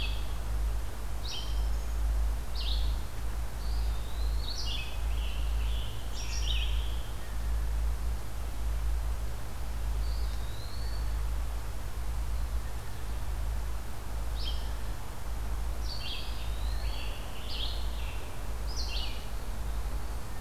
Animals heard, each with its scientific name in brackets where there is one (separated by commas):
Red-eyed Vireo (Vireo olivaceus), Eastern Wood-Pewee (Contopus virens), Scarlet Tanager (Piranga olivacea)